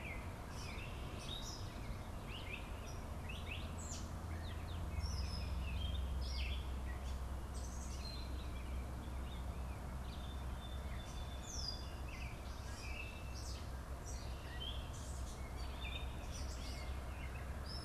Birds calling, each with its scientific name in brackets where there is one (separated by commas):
Gray Catbird (Dumetella carolinensis), Song Sparrow (Melospiza melodia)